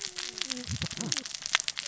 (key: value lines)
label: biophony, cascading saw
recorder: SoundTrap 600 or HydroMoth